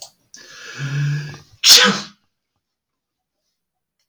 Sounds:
Sneeze